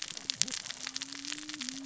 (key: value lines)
label: biophony, cascading saw
recorder: SoundTrap 600 or HydroMoth